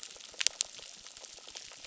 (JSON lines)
{"label": "biophony, crackle", "recorder": "SoundTrap 600"}